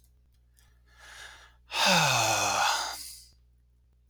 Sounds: Sigh